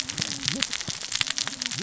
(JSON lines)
{"label": "biophony, cascading saw", "recorder": "SoundTrap 600 or HydroMoth"}